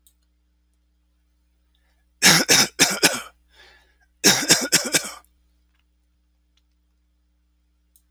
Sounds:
Cough